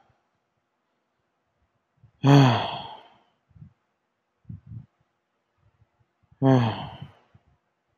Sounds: Sigh